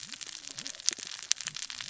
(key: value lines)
label: biophony, cascading saw
recorder: SoundTrap 600 or HydroMoth